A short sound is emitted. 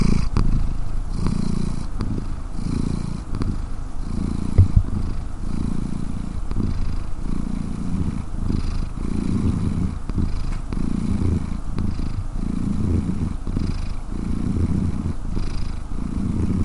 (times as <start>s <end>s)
4.5s 4.8s